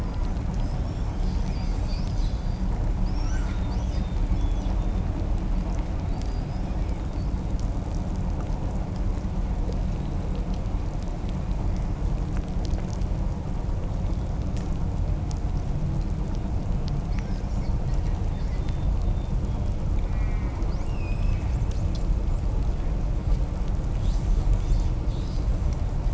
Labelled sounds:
0.3	7.9	killer whale, southern resident, 0.63 to 8.0 kHz
16.9	19.8	killer whale, southern resident, 0.99 to 8.0 kHz
20.0	20.6	killer whale, southern resident, call S04, 1.5 to 3.0 kHz
20.4	21.6	killer whale, southern resident, 1.8 to 8.0 kHz
23.8	25.8	killer whale, 1.3 to 8.0 kHz

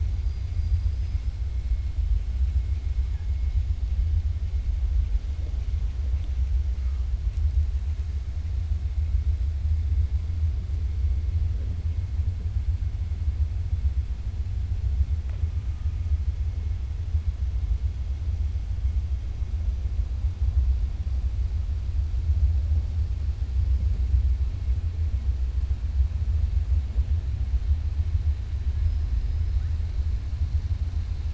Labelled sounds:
0.5	1.3	killer whale, 4.2 to 6.0 kHz

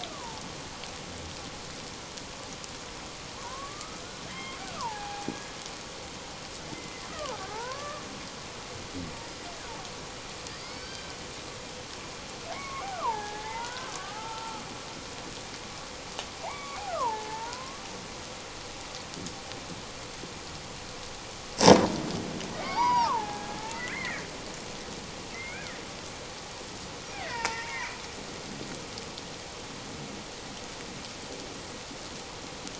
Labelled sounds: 0.1	0.4	killer whale, Bigg's (transient), 0.78 to 1.3 kHz
3.4	5.3	killer whale, Bigg's (transient), 0.78 to 3.2 kHz
6.7	8.0	killer whale, Bigg's (transient), 0.78 to 2.1 kHz
10.6	11.1	killer whale, Bigg's (transient), 1.5 to 5.4 kHz
12.5	14.6	killer whale, Bigg's (transient), 0.78 to 2.3 kHz
16.4	17.9	killer whale, Bigg's (transient), 0.78 to 2.4 kHz
22.5	24.2	killer whale, Bigg's (transient), 0.78 to 4.9 kHz
25.3	25.7	killer whale, Bigg's (transient), 1.3 to 2.5 kHz
27.1	28.0	killer whale, Bigg's (transient), 0.84 to 5.2 kHz

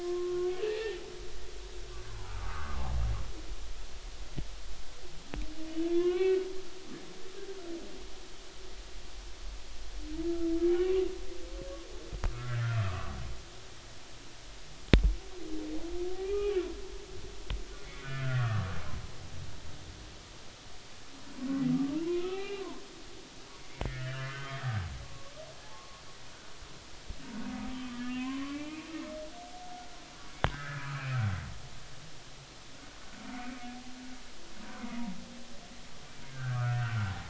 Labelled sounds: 0.0	1.0	humpback whale, 0.80 to 1.9 kHz
2.1	2.9	humpback whale, 0.80 to 1.5 kHz
5.8	6.5	humpback whale, 0.99 to 2.8 kHz
12.3	13.1	humpback whale, 0.99 to 1.9 kHz
16.2	16.5	humpback whale, 1.2 to 2.5 kHz
17.8	18.7	humpback whale, 1.1 to 2.3 kHz
22.0	22.6	humpback whale, 0.93 to 2.5 kHz
23.6	25.3	humpback whale, 0.99 to 3.3 kHz
25.7	26.0	humpback whale, 0.99 to 1.2 kHz
27.7	28.9	humpback whale, 0.96 to 3.3 kHz
29.6	31.0	humpback whale, 1.1 to 1.8 kHz
33.3	33.7	humpback whale, 2.0 to 2.4 kHz
36.2	37.2	humpback whale, 0.80 to 1.7 kHz

